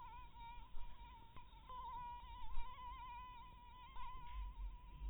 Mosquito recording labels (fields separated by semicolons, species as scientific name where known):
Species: Anopheles dirus; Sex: female; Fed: blood-fed; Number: one; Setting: cup